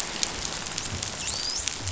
{"label": "biophony, dolphin", "recorder": "SoundTrap 500"}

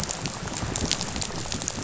{"label": "biophony, rattle", "recorder": "SoundTrap 500"}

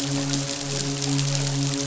{"label": "biophony, midshipman", "recorder": "SoundTrap 500"}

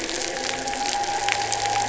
{"label": "anthrophony, boat engine", "recorder": "SoundTrap 300"}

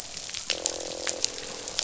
{"label": "biophony, croak", "recorder": "SoundTrap 500"}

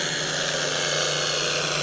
{"label": "anthrophony, boat engine", "recorder": "SoundTrap 300"}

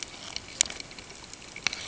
{"label": "ambient", "recorder": "HydroMoth"}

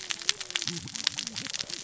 {"label": "biophony, cascading saw", "recorder": "SoundTrap 600 or HydroMoth"}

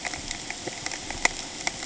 {"label": "ambient", "recorder": "HydroMoth"}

